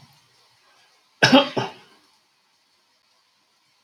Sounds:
Cough